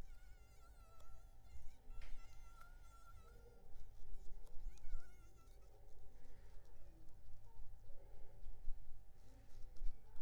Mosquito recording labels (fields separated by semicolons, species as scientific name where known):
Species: Anopheles arabiensis; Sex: male; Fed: unfed; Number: one; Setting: cup